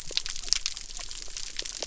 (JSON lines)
{"label": "biophony", "recorder": "SoundTrap 300"}